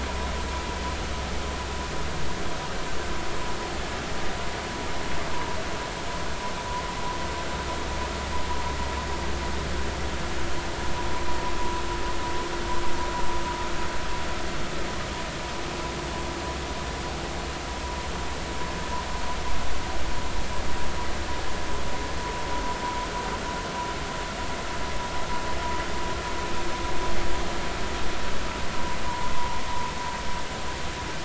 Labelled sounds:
29.0	29.6	vessel noise, 0.86 to 1.1 kHz

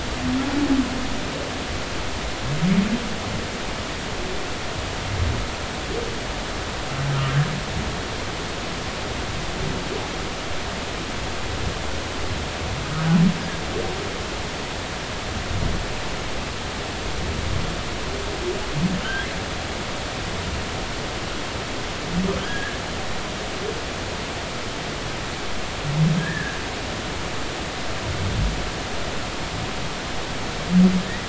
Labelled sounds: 19.0	19.3	humpback whale, 2.9 to 3.4 kHz
22.4	22.8	humpback whale, 1.4 to 1.8 kHz
26.2	26.6	humpback whale, 1.5 to 1.9 kHz
31.0	31.2	humpback whale, 1.7 to 2.0 kHz

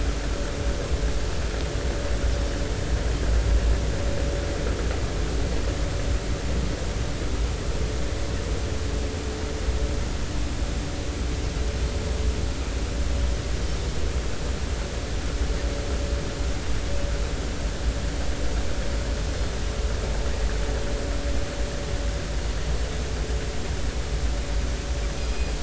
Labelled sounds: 25.1	25.5	Pacific white-sided dolphin, 2.4 to 2.6 kHz

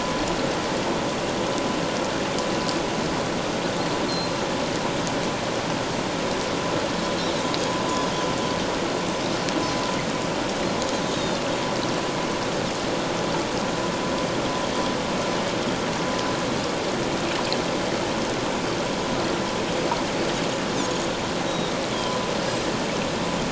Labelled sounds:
7.9	8.1	Pacific white-sided dolphin, 6.6 to 6.9 kHz
11.1	11.4	Pacific white-sided dolphin, 3.5 to 3.9 kHz
21.5	21.7	Pacific white-sided dolphin, 3.6 to 3.9 kHz

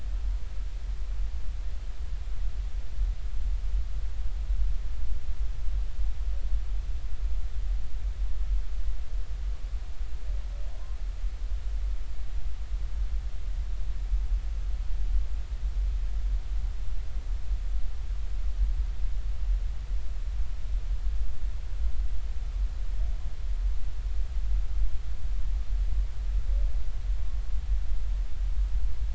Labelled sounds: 10.7	11.0	humpback whale, 0.93 to 1.1 kHz

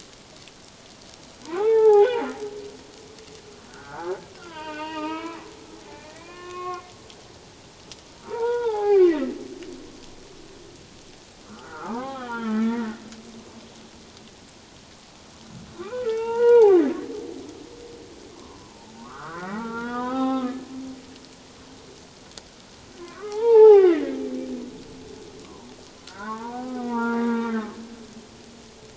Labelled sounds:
1.4	2.2	humpback whale, 0.78 to 3.6 kHz
3.7	5.4	humpback whale, 0.78 to 4.9 kHz
5.9	6.8	humpback whale, 0.97 to 2.6 kHz
8.2	9.3	humpback whale, 0.78 to 3.9 kHz
11.5	13.0	humpback whale, 0.78 to 3.5 kHz
15.8	16.8	humpback whale, 0.78 to 3.8 kHz
18.4	20.5	humpback whale, 0.78 to 3.8 kHz
23.0	24.1	humpback whale, 0.78 to 3.8 kHz
25.4	27.8	humpback whale, 0.78 to 2.0 kHz

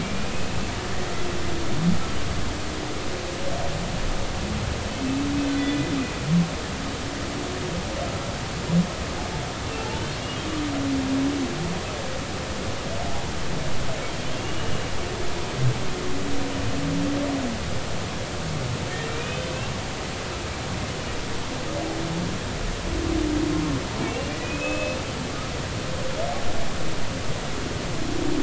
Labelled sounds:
0.0	0.6	humpback whale, 2.3 to 2.7 kHz
5.5	5.8	humpback whale, 1.9 to 2.0 kHz
10.2	10.4	humpback whale, 2.8 to 2.9 kHz
14.4	14.7	humpback whale, 2.7 to 3.0 kHz
19.1	19.4	humpback whale, 2.3 to 2.6 kHz
24.1	25.0	humpback whale, 2.4 to 2.9 kHz

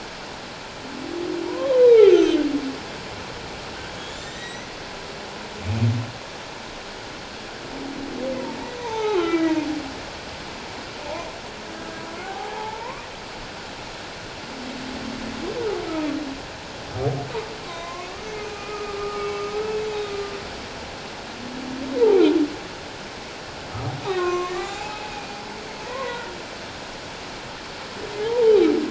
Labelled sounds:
1.4	2.1	humpback whale, 0.81 to 2.5 kHz
4.0	4.7	humpback whale, 1.8 to 7.4 kHz
8.8	9.6	humpback whale, 0.78 to 6.2 kHz
12.2	13.1	humpback whale, 0.78 to 1.2 kHz
17.7	20.2	humpback whale, 0.97 to 3.9 kHz
24.0	25.4	humpback whale, 0.78 to 6.2 kHz
25.8	26.3	humpback whale, 0.88 to 2.0 kHz
28.2	28.5	humpback whale, 0.81 to 1.0 kHz

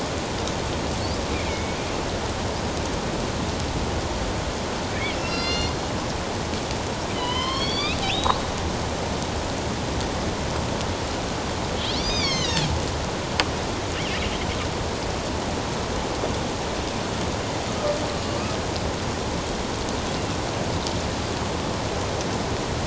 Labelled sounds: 1.3	1.8	killer whale, northern resident, A clan, AB subclan, 2.0 to 2.5 kHz
4.9	5.7	killer whale, northern resident, A clan, AB subclan, 1.3 to 7.2 kHz
7.1	8.4	killer whale, northern resident, A clan, AB subclan, 0.94 to 5.9 kHz
11.9	12.7	killer whale, northern resident, A clan, AB subclan, 1.9 to 6.8 kHz
18.3	18.6	killer whale, northern resident, A clan, AB subclan, 1.1 to 1.3 kHz

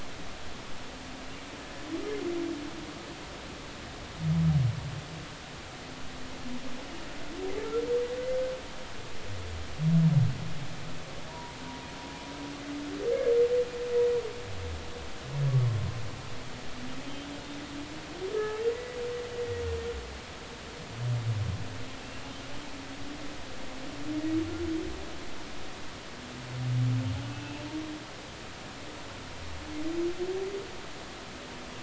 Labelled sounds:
11.3	11.5	humpback whale, 0.90 to 1.0 kHz
17.0	17.3	humpback whale, 3.0 to 3.2 kHz
18.3	19.0	humpback whale, 1.2 to 2.0 kHz
27.3	27.6	humpback whale, 2.6 to 2.8 kHz

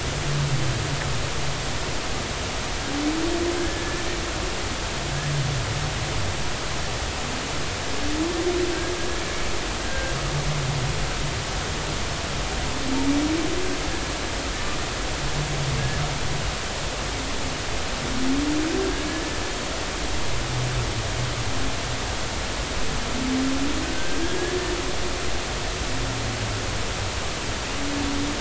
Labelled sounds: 3.6	3.8	humpback whale, 1.6 to 1.8 kHz
9.8	10.1	humpback whale, 1.5 to 1.6 kHz
19.1	19.4	humpback whale, 1.7 to 1.8 kHz
24.0	24.2	humpback whale, 1.5 to 1.6 kHz

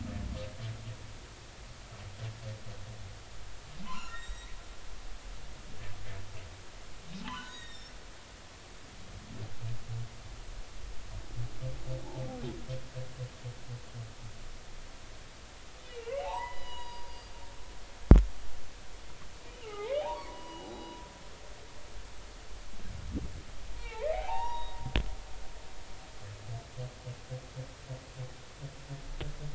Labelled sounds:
3.8	4.5	humpback whale, 0.90 to 7.7 kHz
7.2	7.9	humpback whale, 0.80 to 7.7 kHz
8.5	8.9	humpback whale, 1.7 to 3.9 kHz
15.8	17.5	humpback whale, 0.80 to 4.9 kHz
19.5	21.0	humpback whale, 0.80 to 3.9 kHz
23.8	24.8	humpback whale, 0.80 to 3.9 kHz

